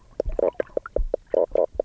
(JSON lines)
{"label": "biophony, knock croak", "recorder": "SoundTrap 300"}